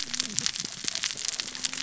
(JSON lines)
{"label": "biophony, cascading saw", "recorder": "SoundTrap 600 or HydroMoth"}